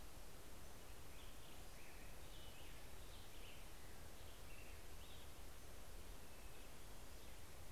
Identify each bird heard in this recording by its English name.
American Robin